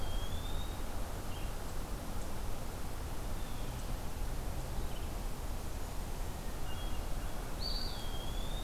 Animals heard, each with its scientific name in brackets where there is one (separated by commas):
Red-eyed Vireo (Vireo olivaceus), Eastern Wood-Pewee (Contopus virens), Hermit Thrush (Catharus guttatus), Blue Jay (Cyanocitta cristata)